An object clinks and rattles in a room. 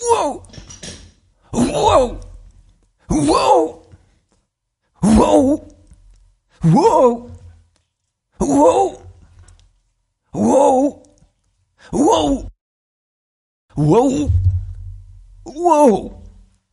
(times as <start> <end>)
0.5 1.4